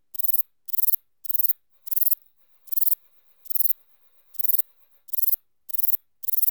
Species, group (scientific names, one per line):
Platycleis albopunctata
Orthoptera